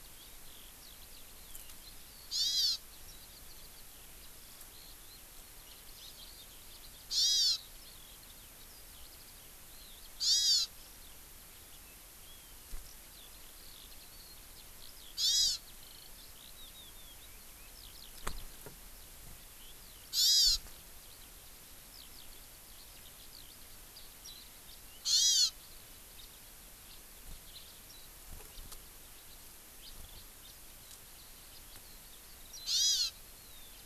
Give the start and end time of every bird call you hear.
[0.00, 33.78] Eurasian Skylark (Alauda arvensis)
[2.28, 2.88] Hawaii Amakihi (Chlorodrepanis virens)
[7.08, 7.58] Hawaii Amakihi (Chlorodrepanis virens)
[10.18, 10.68] Hawaii Amakihi (Chlorodrepanis virens)
[15.18, 15.58] Hawaii Amakihi (Chlorodrepanis virens)
[20.08, 20.58] Hawaii Amakihi (Chlorodrepanis virens)
[25.08, 25.48] Hawaii Amakihi (Chlorodrepanis virens)
[32.68, 33.18] Hawaii Amakihi (Chlorodrepanis virens)

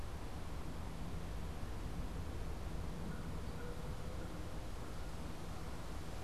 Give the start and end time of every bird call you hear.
[0.00, 4.45] American Crow (Corvus brachyrhynchos)

